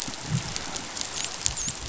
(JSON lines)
{"label": "biophony, dolphin", "recorder": "SoundTrap 500"}